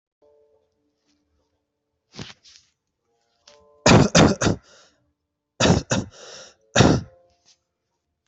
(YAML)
expert_labels:
- quality: good
  cough_type: dry
  dyspnea: false
  wheezing: false
  stridor: false
  choking: false
  congestion: false
  nothing: true
  diagnosis: upper respiratory tract infection
  severity: mild